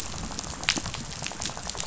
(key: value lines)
label: biophony, rattle
recorder: SoundTrap 500